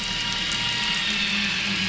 {"label": "anthrophony, boat engine", "recorder": "SoundTrap 500"}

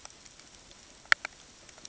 {"label": "ambient", "recorder": "HydroMoth"}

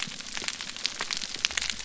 {"label": "biophony", "recorder": "SoundTrap 300"}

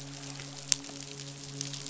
{"label": "biophony, midshipman", "recorder": "SoundTrap 500"}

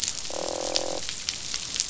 {"label": "biophony, croak", "recorder": "SoundTrap 500"}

